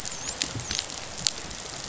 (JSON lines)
{"label": "biophony, dolphin", "recorder": "SoundTrap 500"}